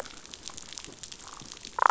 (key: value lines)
label: biophony, damselfish
recorder: SoundTrap 500